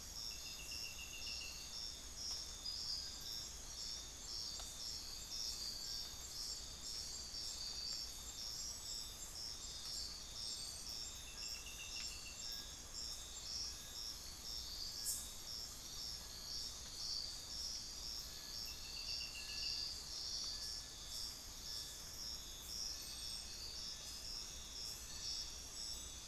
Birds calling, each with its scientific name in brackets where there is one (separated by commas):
Little Tinamou (Crypturellus soui)